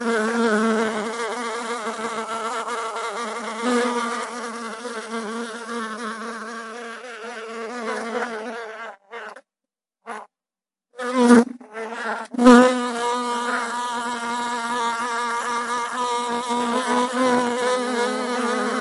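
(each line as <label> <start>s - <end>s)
A fly or bee buzzing nearby. 0.0s - 1.2s
A distant buzzing sound, like a fly or bee. 1.3s - 3.6s
A fly or bee buzzing nearby. 3.6s - 4.4s
A fly or bee buzzing gradually becomes quieter. 4.4s - 10.3s
A fly or bee buzzing that moves from close up to far away. 11.0s - 12.9s
A fly or bee is buzzing at a constant distance. 13.0s - 18.8s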